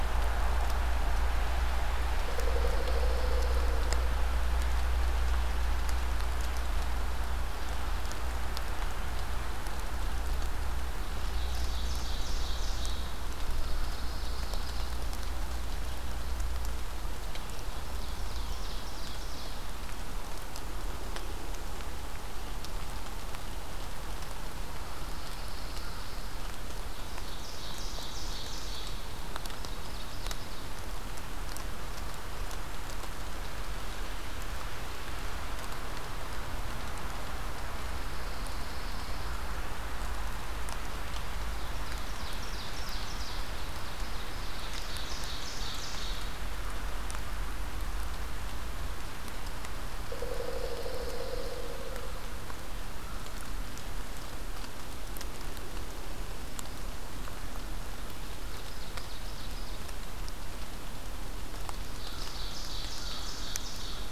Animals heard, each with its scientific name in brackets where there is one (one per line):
Pine Warbler (Setophaga pinus)
Ovenbird (Seiurus aurocapilla)
Pileated Woodpecker (Dryocopus pileatus)